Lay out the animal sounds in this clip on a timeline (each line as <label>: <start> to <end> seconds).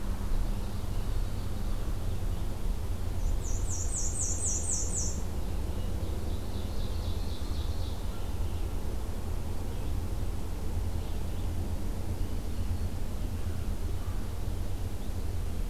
Ovenbird (Seiurus aurocapilla): 0.2 to 1.9 seconds
Red-eyed Vireo (Vireo olivaceus): 1.8 to 13.0 seconds
Black-and-white Warbler (Mniotilta varia): 3.2 to 5.4 seconds
Ovenbird (Seiurus aurocapilla): 6.0 to 8.1 seconds